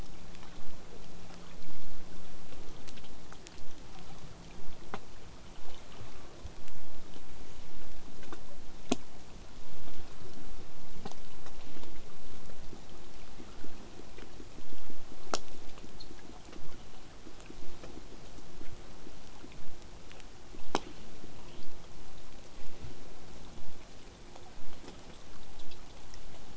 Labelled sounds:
21.6	26.5	vessel noise, 0 to 8.0 kHz

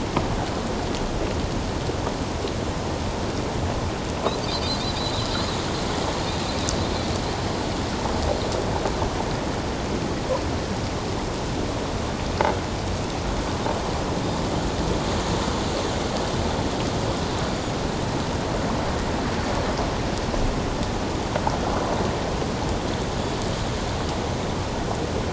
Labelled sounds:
4.9	5.3	Pacific white-sided dolphin, 3.6 to 4.1 kHz

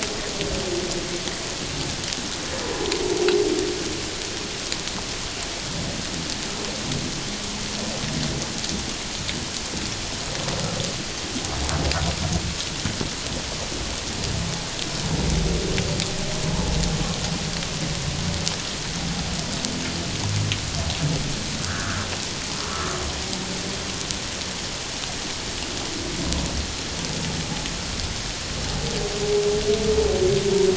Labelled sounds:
16.5	16.8	humpback whale, 0.81 to 1.1 kHz
21.6	22.0	humpback whale, 1.1 to 1.8 kHz

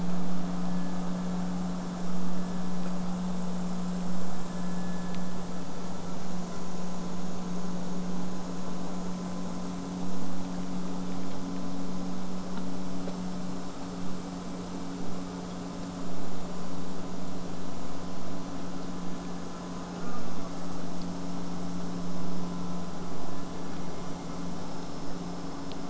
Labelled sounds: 0.0	5.0	vessel noise, 0 to 8.0 kHz
8.2	11.4	killer whale, southern resident, J pod, 7.6 to 8.0 kHz
20.0	20.8	killer whale, southern resident, J pod, buzz, 7.6 to 8.0 kHz

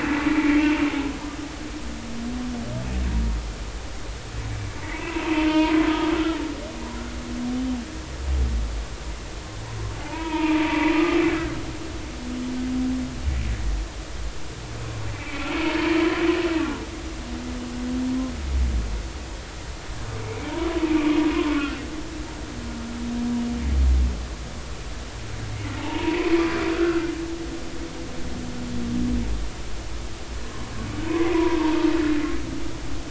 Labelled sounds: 0.3	0.6	humpback whale, 2.1 to 2.4 kHz
4.8	5.9	humpback whale, 0.83 to 2.8 kHz
10.0	10.9	humpback whale, 0.80 to 2.6 kHz
15.1	15.7	humpback whale, 2.2 to 2.7 kHz
20.8	21.5	humpback whale, 2.1 to 2.6 kHz
25.8	27.1	humpback whale, 0.83 to 2.9 kHz
30.4	30.7	humpback whale, 0.96 to 1.1 kHz
31.1	31.6	humpback whale, 0.90 to 2.3 kHz

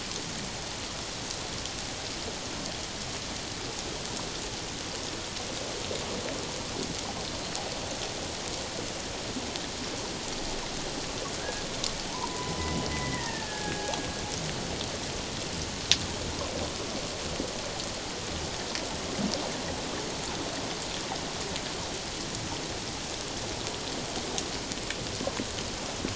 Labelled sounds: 11.4	12.6	killer whale, Bigg's (transient), 0.84 to 1.7 kHz
12.9	14.0	killer whale, Bigg's (transient), 1.5 to 2.1 kHz

